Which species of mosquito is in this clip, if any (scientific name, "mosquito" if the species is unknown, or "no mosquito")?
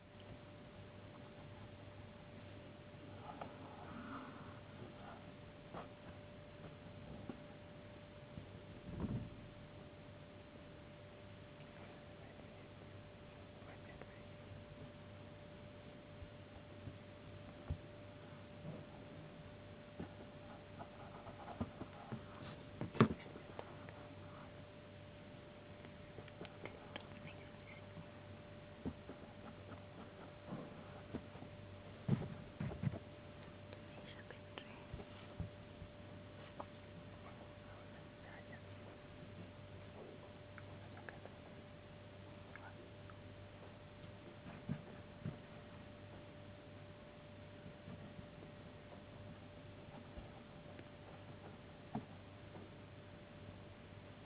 no mosquito